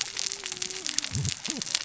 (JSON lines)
{"label": "biophony, cascading saw", "recorder": "SoundTrap 600 or HydroMoth"}